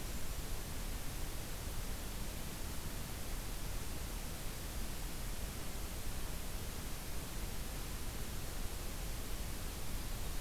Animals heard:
forest ambience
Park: Acadia National Park